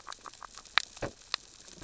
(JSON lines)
{"label": "biophony, grazing", "recorder": "SoundTrap 600 or HydroMoth"}